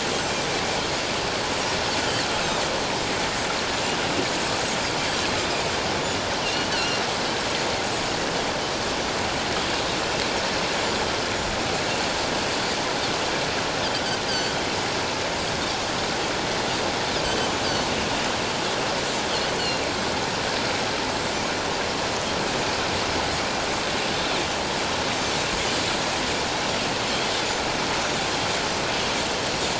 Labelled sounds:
6.4	7.0	Pacific white-sided dolphin, 2.6 to 3.1 kHz
7.9	8.2	Pacific white-sided dolphin, 6.6 to 7.0 kHz
14.3	14.5	Pacific white-sided dolphin, 4.3 to 4.9 kHz
19.6	19.9	Pacific white-sided dolphin, 2.7 to 4.5 kHz
21.1	21.4	Pacific white-sided dolphin, 7.0 to 7.9 kHz

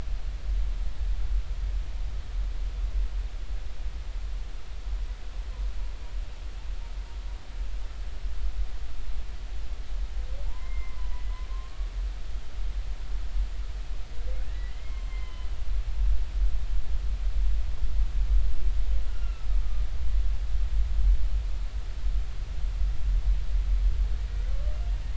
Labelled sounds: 10.5	11.9	humpback whale, 0.83 to 2.2 kHz
14.5	15.5	humpback whale, 0.96 to 3.1 kHz
19.1	19.8	humpback whale, 1.2 to 2.9 kHz

